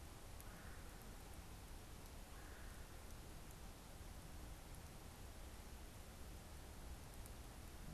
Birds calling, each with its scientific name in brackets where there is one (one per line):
Red-bellied Woodpecker (Melanerpes carolinus)